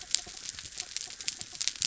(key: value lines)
label: anthrophony, mechanical
recorder: SoundTrap 300